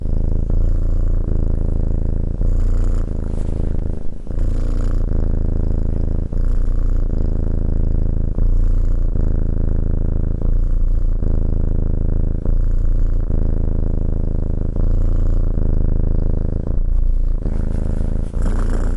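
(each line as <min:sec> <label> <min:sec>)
0:00.0 A cat purrs steadily. 0:19.0
0:18.1 A cat purrs loudly and sharply. 0:19.0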